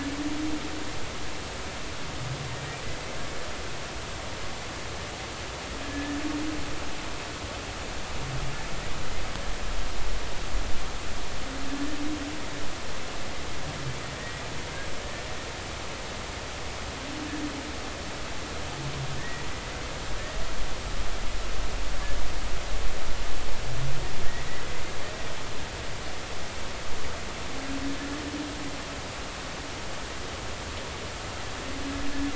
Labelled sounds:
5.8	6.2	humpback whale, 1.7 to 1.8 kHz
19.2	19.4	humpback whale, 1.7 to 2.0 kHz

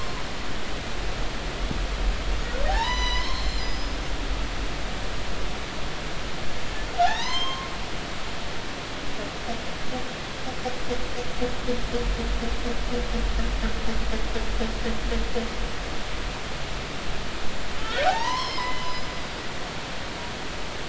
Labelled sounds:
2.7	4.0	humpback whale, 0.80 to 8.0 kHz
7.0	8.6	humpback whale, 0.80 to 6.4 kHz
17.8	19.1	humpback whale, 0.80 to 5.6 kHz

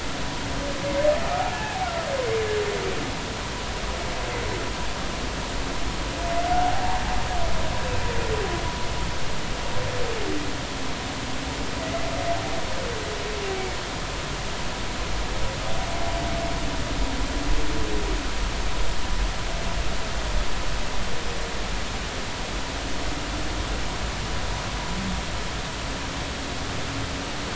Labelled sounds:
1.5	1.9	humpback whale, 0.80 to 1.8 kHz

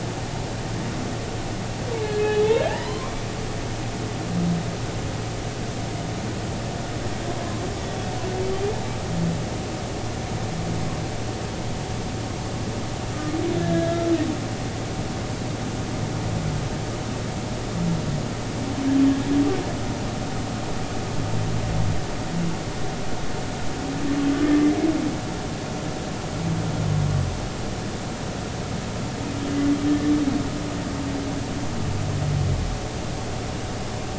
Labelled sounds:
2.0	3.2	humpback whale, 0.80 to 3.8 kHz
13.6	14.0	humpback whale, 1.6 to 1.8 kHz

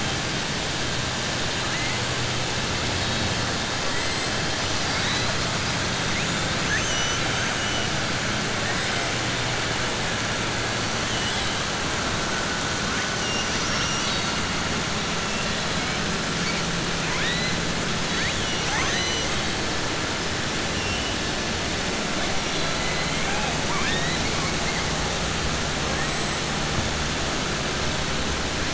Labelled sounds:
6.6	7.3	killer whale, southern resident, 1.6 to 4.0 kHz
23.6	24.2	killer whale, southern resident, 0.92 to 4.1 kHz

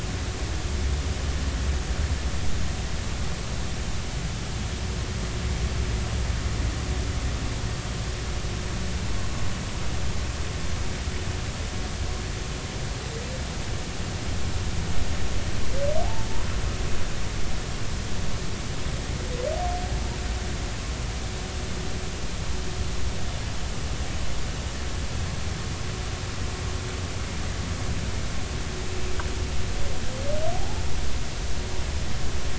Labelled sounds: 17.0	17.3	humpback whale, 0.80 to 0.96 kHz
30.5	30.8	humpback whale, 0.80 to 0.93 kHz

